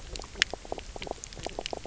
{"label": "biophony, knock croak", "recorder": "SoundTrap 300"}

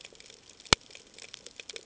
{"label": "ambient", "recorder": "HydroMoth"}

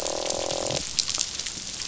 {"label": "biophony, croak", "recorder": "SoundTrap 500"}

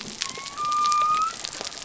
{"label": "biophony", "recorder": "SoundTrap 300"}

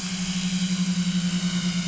{"label": "anthrophony, boat engine", "recorder": "SoundTrap 500"}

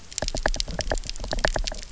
{"label": "biophony, knock", "recorder": "SoundTrap 300"}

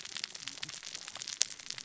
{"label": "biophony, cascading saw", "recorder": "SoundTrap 600 or HydroMoth"}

